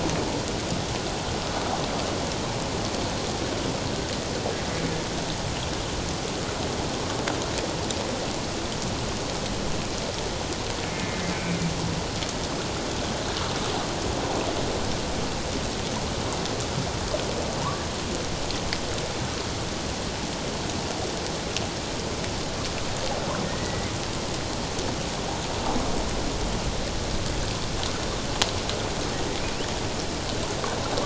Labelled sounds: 10.9	11.6	humpback whale, 2.0 to 2.4 kHz
23.4	23.9	humpback whale, 1.8 to 2.1 kHz
29.4	29.7	humpback whale, 2.2 to 3.2 kHz

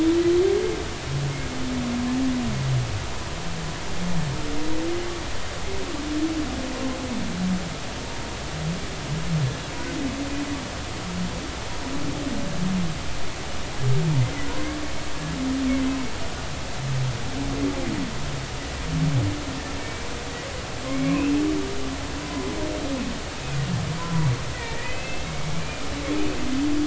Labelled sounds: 19.8	20.1	humpback whale, 2.2 to 2.4 kHz
20.9	21.2	humpback whale, 2.0 to 2.3 kHz
22.2	22.5	humpback whale, 0.96 to 1.1 kHz
24.0	25.8	humpback whale, 0.90 to 2.7 kHz

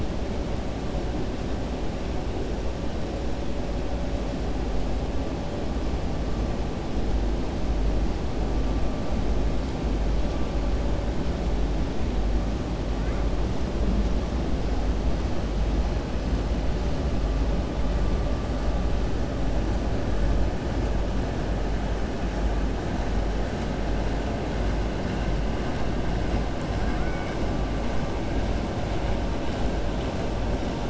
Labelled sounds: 26.8	27.4	killer whale, 1.2 to 2.3 kHz

